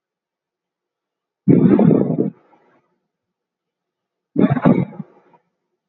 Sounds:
Sneeze